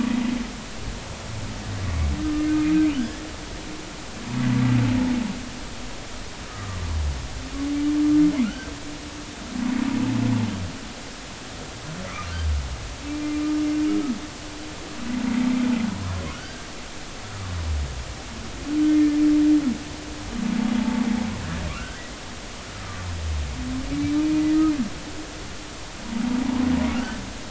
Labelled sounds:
3.0	3.2	humpback whale, 1.4 to 1.8 kHz
6.5	6.8	humpback whale, 1.1 to 1.3 kHz
8.4	8.7	humpback whale, 1.3 to 1.6 kHz
12.1	12.3	humpback whale, 1.1 to 1.4 kHz
13.1	13.3	humpback whale, 2.3 to 2.4 kHz
16.3	16.7	humpback whale, 1.3 to 1.7 kHz
21.8	22.0	humpback whale, 1.3 to 1.6 kHz
26.9	27.2	humpback whale, 1.3 to 1.6 kHz

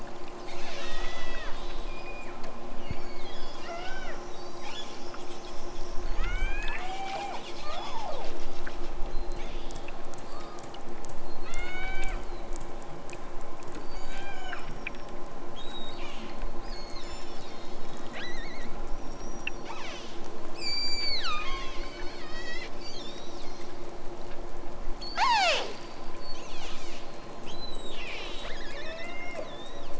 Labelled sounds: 0.0	2.5	killer whale, southern Alaska resident, 1.1 to 8.0 kHz
2.8	4.3	killer whale, southern Alaska resident, 0.41 to 8.0 kHz
6.1	8.4	killer whale, southern Alaska resident, 0.23 to 8.0 kHz
9.1	9.9	killer whale, southern Alaska resident, 1.4 to 8.0 kHz
11.4	12.2	killer whale, southern Alaska resident, 0.87 to 8.0 kHz
13.8	14.7	killer whale, southern Alaska resident, 1.1 to 8.0 kHz
15.6	17.8	killer whale, southern Alaska resident, 1.7 to 8.0 kHz
18.8	23.6	killer whale, southern Alaska resident, 0.74 to 8.0 kHz
25.0	25.8	killer whale, southern Alaska resident, 0.32 to 8.0 kHz
26.2	27.1	killer whale, southern Alaska resident, 1.3 to 8.0 kHz
27.4	29.9	killer whale, southern Alaska resident, 1.2 to 8.0 kHz

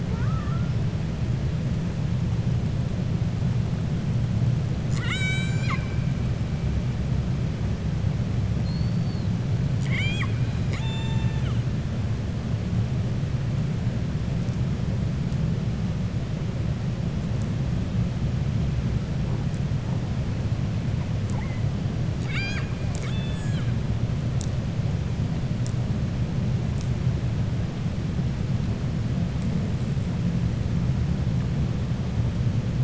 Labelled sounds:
0.0	0.7	killer whale, 0.45 to 2.3 kHz
4.8	6.0	killer whale, 1.1 to 7.9 kHz

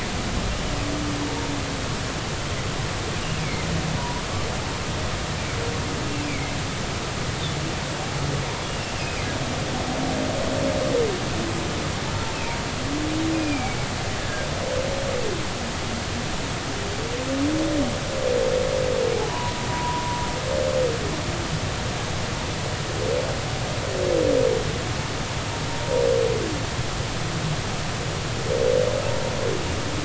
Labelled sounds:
3.4	4.2	humpback whale, 0.90 to 2.5 kHz
6.3	6.5	humpback whale, 2.0 to 2.6 kHz
8.7	9.3	humpback whale, 1.9 to 2.9 kHz
12.3	13.8	humpback whale, 2.1 to 2.7 kHz
14.2	14.5	humpback whale, 1.5 to 1.8 kHz
19.3	20.2	humpback whale, 0.83 to 1.1 kHz

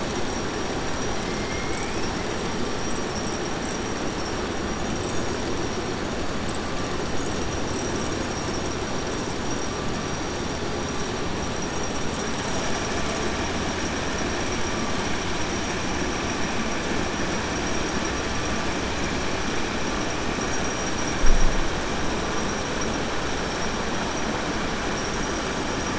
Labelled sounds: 1.4	2.0	killer whale, 1.7 to 2.6 kHz

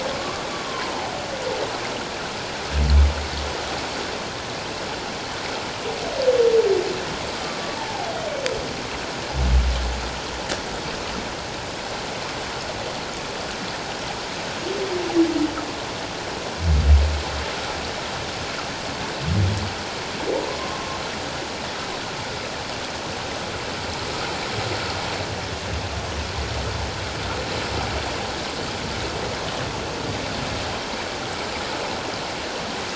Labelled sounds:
0.1	0.4	humpback whale, 1.0 to 1.2 kHz
7.3	7.6	humpback whale, 1.1 to 1.2 kHz
20.6	21.0	humpback whale, 1.0 to 1.1 kHz

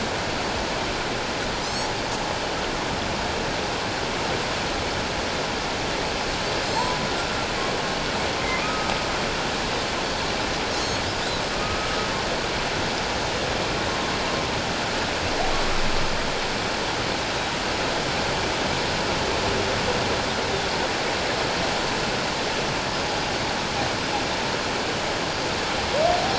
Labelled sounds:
1.6	1.9	Pacific white-sided dolphin, 4.9 to 7.9 kHz
6.6	6.9	Pacific white-sided dolphin, 4.1 to 7.8 kHz
8.6	8.9	humpback whale, 1.2 to 1.3 kHz
10.7	11.0	Pacific white-sided dolphin, 4.0 to 6.6 kHz
11.5	12.1	humpback whale, 1.2 to 1.4 kHz

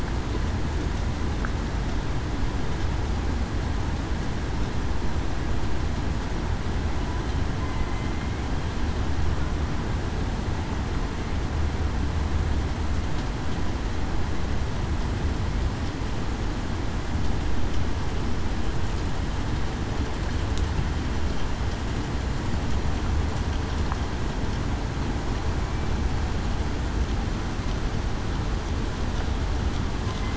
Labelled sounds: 7.6	8.3	killer whale, southern resident, 2.0 to 2.1 kHz

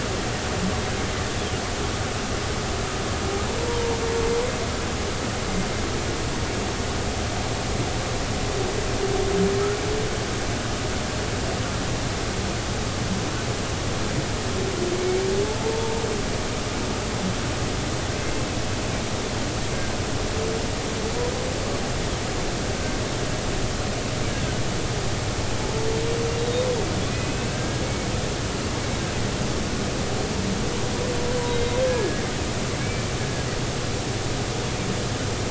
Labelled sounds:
3.7	4.0	humpback whale, 0.90 to 0.99 kHz
15.6	15.9	humpback whale, 0.86 to 1.0 kHz
27.1	27.8	humpback whale, 1.5 to 2.7 kHz
31.5	32.2	humpback whale, 1.6 to 3.9 kHz
32.8	33.1	humpback whale, 2.2 to 2.4 kHz

